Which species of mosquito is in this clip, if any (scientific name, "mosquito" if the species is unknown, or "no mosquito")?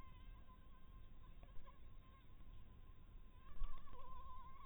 Anopheles harrisoni